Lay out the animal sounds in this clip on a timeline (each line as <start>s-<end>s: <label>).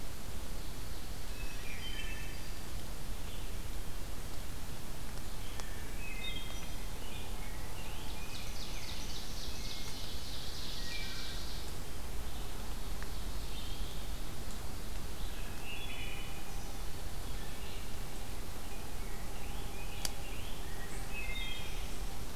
0.3s-1.9s: Ovenbird (Seiurus aurocapilla)
1.1s-2.3s: Black-throated Green Warbler (Setophaga virens)
1.5s-2.6s: Wood Thrush (Hylocichla mustelina)
3.2s-22.4s: Red-eyed Vireo (Vireo olivaceus)
5.7s-6.9s: Wood Thrush (Hylocichla mustelina)
6.8s-9.1s: Rose-breasted Grosbeak (Pheucticus ludovicianus)
7.9s-11.8s: Ovenbird (Seiurus aurocapilla)
9.4s-10.2s: Wood Thrush (Hylocichla mustelina)
10.7s-11.3s: Wood Thrush (Hylocichla mustelina)
12.4s-14.3s: Ovenbird (Seiurus aurocapilla)
13.3s-14.1s: Eastern Wood-Pewee (Contopus virens)
15.5s-16.6s: Wood Thrush (Hylocichla mustelina)
18.6s-21.7s: Rose-breasted Grosbeak (Pheucticus ludovicianus)
20.8s-22.0s: Wood Thrush (Hylocichla mustelina)